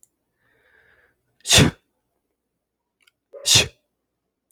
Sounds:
Sneeze